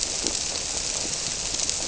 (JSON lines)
{"label": "biophony", "recorder": "SoundTrap 300"}